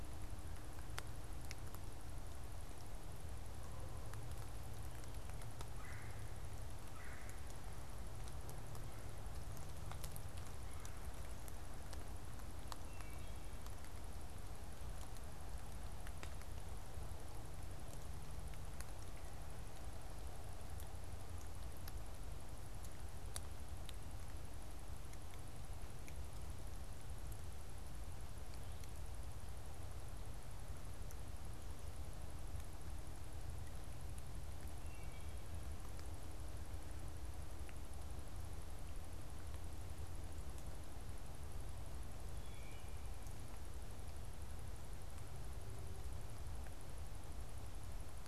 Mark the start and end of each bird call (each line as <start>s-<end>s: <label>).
5.6s-7.5s: Red-bellied Woodpecker (Melanerpes carolinus)
12.7s-13.6s: Wood Thrush (Hylocichla mustelina)
34.7s-35.5s: Wood Thrush (Hylocichla mustelina)
42.2s-43.0s: Wood Thrush (Hylocichla mustelina)